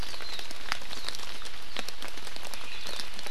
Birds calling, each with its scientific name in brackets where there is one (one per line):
Hawaii Akepa (Loxops coccineus)